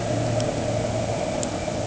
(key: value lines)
label: anthrophony, boat engine
recorder: HydroMoth